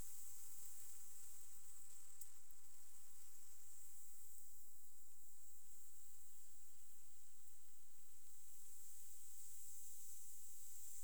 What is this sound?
Leptophyes punctatissima, an orthopteran